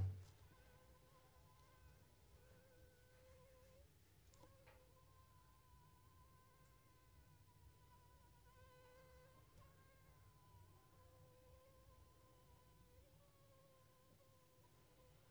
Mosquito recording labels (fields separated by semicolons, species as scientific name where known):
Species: Anopheles funestus s.s.; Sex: female; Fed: unfed; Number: one; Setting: cup